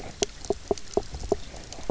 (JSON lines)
{"label": "biophony, knock croak", "recorder": "SoundTrap 300"}